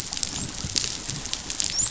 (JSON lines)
{"label": "biophony, dolphin", "recorder": "SoundTrap 500"}